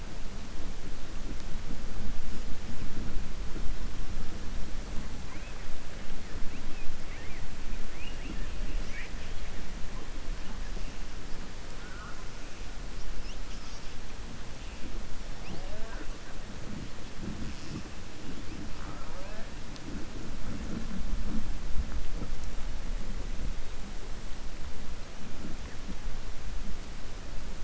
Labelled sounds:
7.9	8.5	killer whale, southern resident, 1.8 to 3.5 kHz

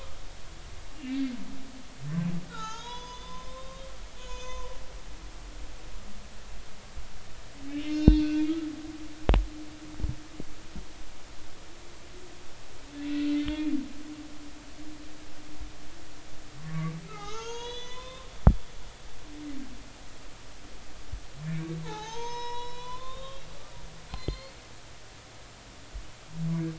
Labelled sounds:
1.0	1.3	humpback whale, 1.7 to 1.9 kHz
2.5	3.9	humpback whale, 0.80 to 6.8 kHz
4.2	4.7	humpback whale, 0.93 to 6.7 kHz
7.8	8.3	humpback whale, 2.4 to 5.2 kHz
13.1	13.7	humpback whale, 1.7 to 3.7 kHz
16.7	18.3	humpback whale, 0.80 to 6.8 kHz
21.8	23.5	humpback whale, 0.80 to 6.5 kHz
24.1	24.6	humpback whale, 2.0 to 4.4 kHz

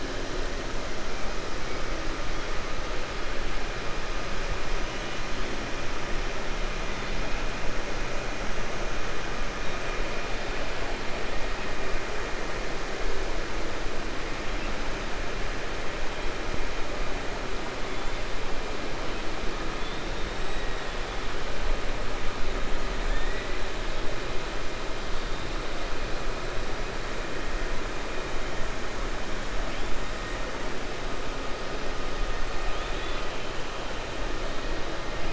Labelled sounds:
32.6	33.3	killer whale, 1.9 to 4.2 kHz

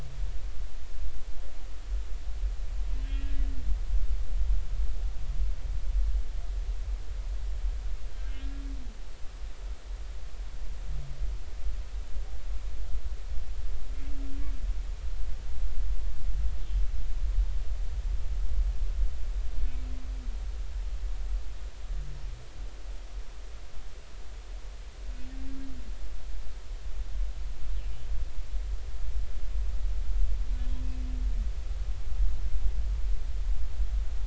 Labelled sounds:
3.0	3.3	humpback whale, 2.7 to 2.8 kHz
8.3	8.6	humpback whale, 1.6 to 1.7 kHz

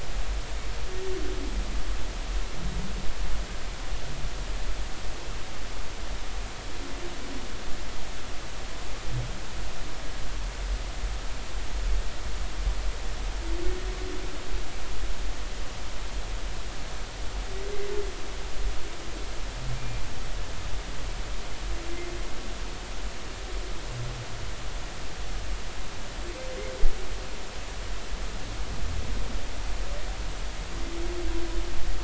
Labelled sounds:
19.8	20.0	humpback whale, 2.3 to 2.4 kHz

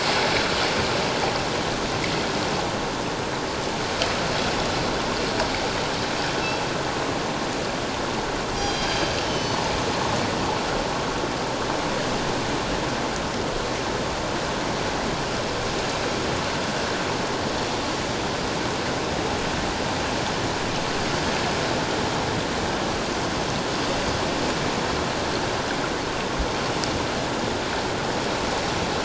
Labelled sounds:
8.6	9.6	killer whale, northern resident, G clan, 2.9 to 6.5 kHz

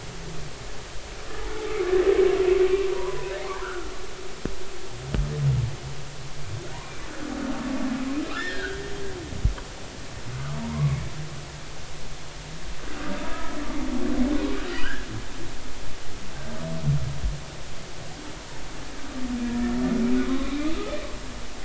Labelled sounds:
2.8	3.9	humpback whale, 0.90 to 1.6 kHz
8.3	8.8	humpback whale, 1.2 to 3.7 kHz
10.6	11.0	humpback whale, 0.90 to 1.2 kHz
13.3	13.6	humpback whale, 1.2 to 1.8 kHz
14.7	15.1	humpback whale, 1.4 to 3.2 kHz
19.4	19.7	humpback whale, 1.6 to 1.9 kHz
20.3	20.7	humpback whale, 1.0 to 2.5 kHz

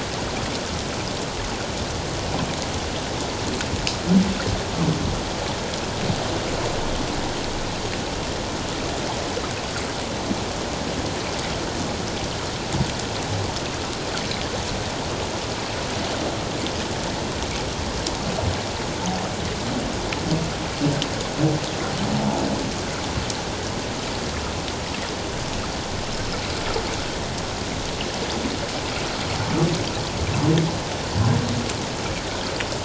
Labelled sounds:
22.1	22.4	humpback whale, 0.81 to 0.97 kHz

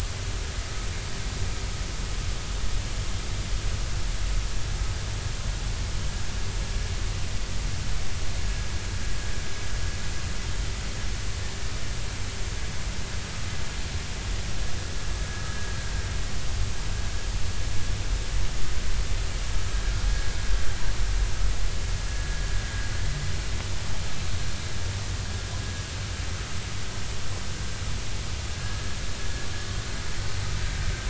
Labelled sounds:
15.5	15.7	vessel noise, 1.6 to 1.7 kHz
22.1	22.4	vessel noise, 1.6 to 1.8 kHz
28.6	29.0	vessel noise, 1.6 to 1.8 kHz

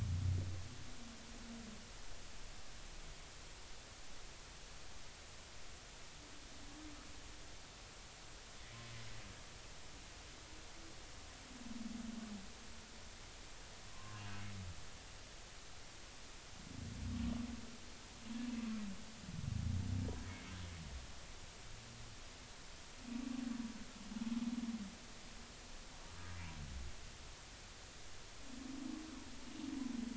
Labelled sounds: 13.9	14.2	humpback whale, 0.99 to 1.2 kHz
20.3	20.5	humpback whale, 2.1 to 2.3 kHz

